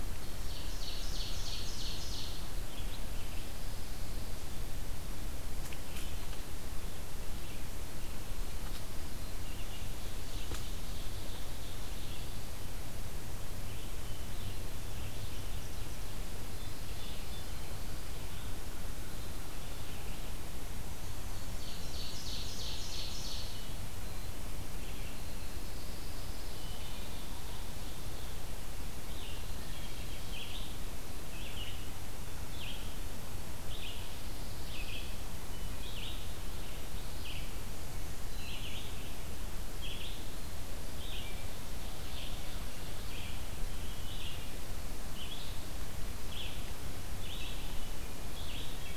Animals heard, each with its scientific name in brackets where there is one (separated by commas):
Black-and-white Warbler (Mniotilta varia), Wood Thrush (Hylocichla mustelina), Ovenbird (Seiurus aurocapilla), Black-capped Chickadee (Poecile atricapillus), Red-eyed Vireo (Vireo olivaceus), Pine Warbler (Setophaga pinus), American Crow (Corvus brachyrhynchos)